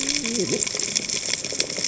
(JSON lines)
{"label": "biophony, cascading saw", "recorder": "HydroMoth"}